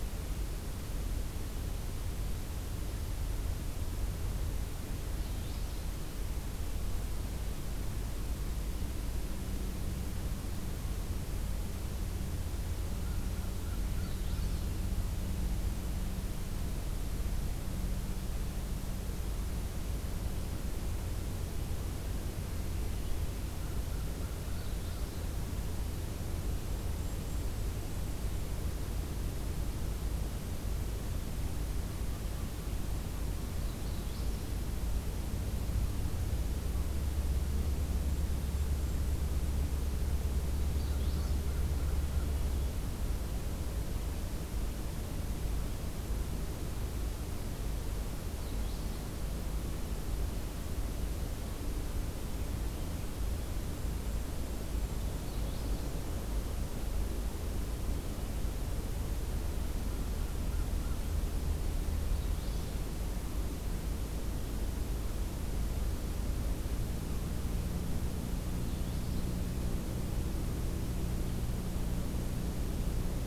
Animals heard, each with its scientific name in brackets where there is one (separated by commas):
Magnolia Warbler (Setophaga magnolia), Golden-crowned Kinglet (Regulus satrapa), American Crow (Corvus brachyrhynchos)